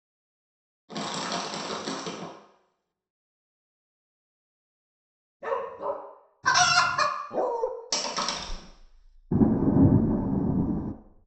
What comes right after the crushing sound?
bark